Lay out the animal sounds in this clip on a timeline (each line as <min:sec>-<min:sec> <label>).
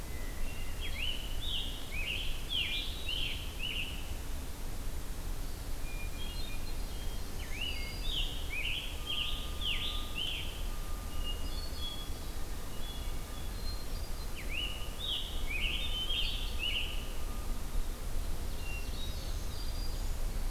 0:00.0-0:01.0 Hermit Thrush (Catharus guttatus)
0:00.8-0:04.1 Scarlet Tanager (Piranga olivacea)
0:01.5-0:03.7 Ovenbird (Seiurus aurocapilla)
0:02.4-0:03.8 Hermit Thrush (Catharus guttatus)
0:05.8-0:07.2 Hermit Thrush (Catharus guttatus)
0:06.8-0:08.4 Black-throated Green Warbler (Setophaga virens)
0:07.5-0:10.4 Scarlet Tanager (Piranga olivacea)
0:11.0-0:12.4 Hermit Thrush (Catharus guttatus)
0:12.7-0:14.3 Hermit Thrush (Catharus guttatus)
0:14.3-0:17.1 Scarlet Tanager (Piranga olivacea)
0:18.0-0:20.3 Ovenbird (Seiurus aurocapilla)
0:18.6-0:20.1 Hermit Thrush (Catharus guttatus)
0:18.9-0:20.2 Black-throated Green Warbler (Setophaga virens)